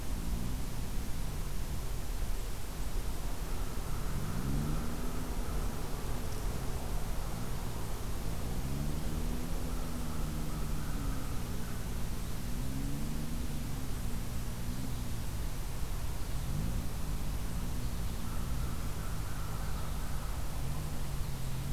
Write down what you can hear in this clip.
American Crow